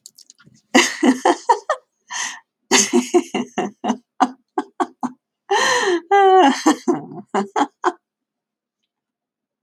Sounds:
Laughter